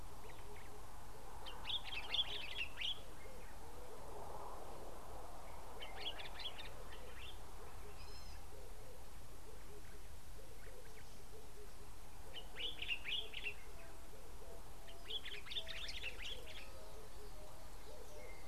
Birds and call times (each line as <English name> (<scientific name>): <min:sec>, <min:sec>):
Common Bulbul (Pycnonotus barbatus): 0:02.2, 0:12.8
Gray-backed Camaroptera (Camaroptera brevicaudata): 0:08.2